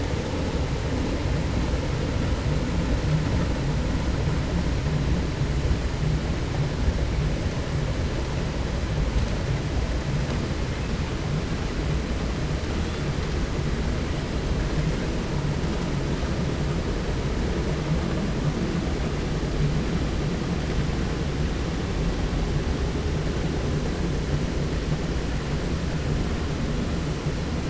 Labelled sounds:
12.8	13.2	killer whale, 2.4 to 5.2 kHz

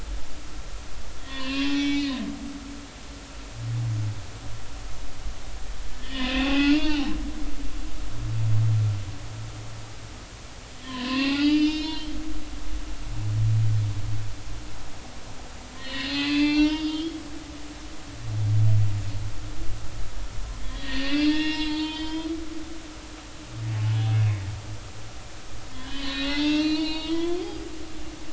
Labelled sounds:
1.2	2.2	humpback whale, 0.96 to 5.3 kHz
5.9	7.1	humpback whale, 0.80 to 3.1 kHz
10.8	13.0	humpback whale, 0.80 to 5.4 kHz
15.8	17.2	humpback whale, 0.80 to 5.1 kHz
20.6	22.4	humpback whale, 0.86 to 5.3 kHz
24.1	24.4	humpback whale, 2.3 to 2.7 kHz
25.7	27.7	humpback whale, 0.83 to 5.4 kHz

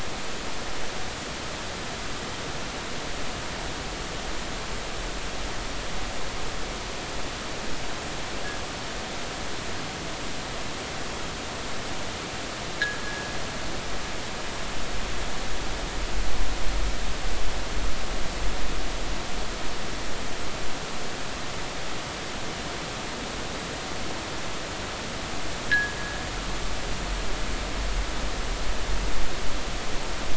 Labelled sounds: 13.0	13.3	fishing gear, 1.6 to 1.7 kHz
25.7	26.0	fishing gear, 1.6 to 1.9 kHz

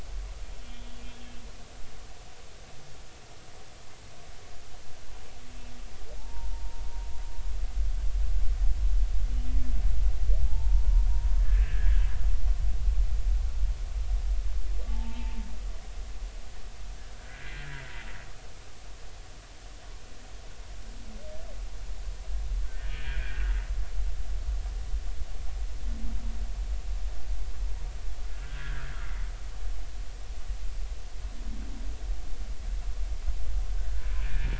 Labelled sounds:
6.2	6.8	humpback whale, 0.80 to 0.99 kHz
10.4	11.0	humpback whale, 0.80 to 0.99 kHz
11.4	12.0	humpback whale, 1.5 to 1.9 kHz
14.9	15.4	humpback whale, 0.80 to 0.96 kHz
17.1	17.6	humpback whale, 1.4 to 2.1 kHz
22.6	23.6	humpback whale, 1.4 to 2.5 kHz
28.4	29.0	humpback whale, 1.3 to 1.8 kHz
34.2	34.5	humpback whale, 2.3 to 2.5 kHz

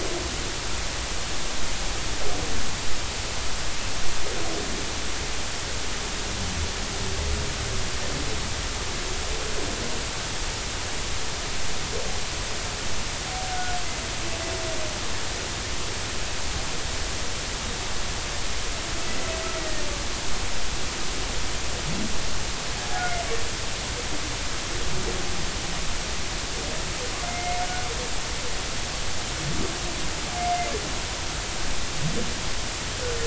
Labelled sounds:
13.5	13.8	humpback whale, 1.4 to 1.5 kHz
20.6	20.8	humpback whale, 1.8 to 2.0 kHz
22.9	23.2	humpback whale, 1.4 to 1.5 kHz
27.3	27.6	humpback whale, 2.1 to 2.2 kHz

